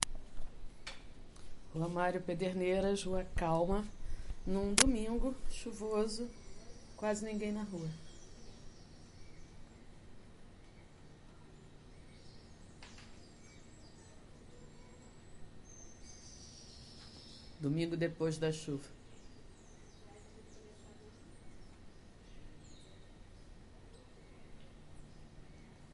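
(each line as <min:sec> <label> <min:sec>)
0:01.6 A woman speaks in a warm, melodic tone on a calm street. 0:08.0
0:03.9 Birds chirp softly in the distance. 0:25.9
0:17.6 A woman speaks clearly and briefly in a conversational tone. 0:18.9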